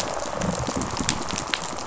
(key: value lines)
label: biophony, rattle response
recorder: SoundTrap 500